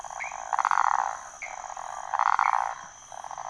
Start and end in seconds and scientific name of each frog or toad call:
0.0	3.4	Phyllomedusa sauvagii
0.2	0.4	Leptodactylus fuscus
1.4	1.5	Pithecopus azureus
2.4	2.5	Pithecopus azureus